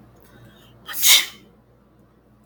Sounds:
Sneeze